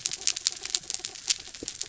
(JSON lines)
{"label": "anthrophony, mechanical", "recorder": "SoundTrap 300"}